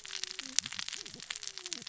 {"label": "biophony, cascading saw", "recorder": "SoundTrap 600 or HydroMoth"}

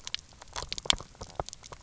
{"label": "biophony, knock croak", "recorder": "SoundTrap 300"}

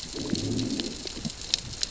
{"label": "biophony, growl", "recorder": "SoundTrap 600 or HydroMoth"}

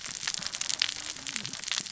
{"label": "biophony, cascading saw", "recorder": "SoundTrap 600 or HydroMoth"}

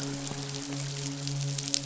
{"label": "biophony, midshipman", "recorder": "SoundTrap 500"}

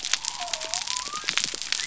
{"label": "biophony", "recorder": "SoundTrap 300"}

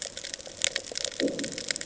{"label": "anthrophony, bomb", "recorder": "HydroMoth"}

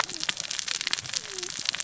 {"label": "biophony, cascading saw", "recorder": "SoundTrap 600 or HydroMoth"}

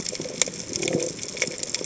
{"label": "biophony", "recorder": "HydroMoth"}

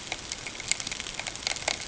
{"label": "ambient", "recorder": "HydroMoth"}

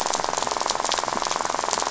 {"label": "biophony, rattle", "recorder": "SoundTrap 500"}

